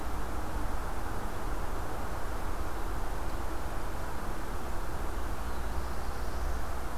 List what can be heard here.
Black-throated Blue Warbler